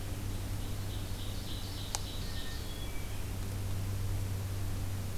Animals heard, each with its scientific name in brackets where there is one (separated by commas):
Ovenbird (Seiurus aurocapilla), Red-eyed Vireo (Vireo olivaceus), Hermit Thrush (Catharus guttatus)